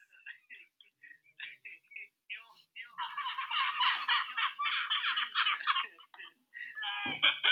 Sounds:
Laughter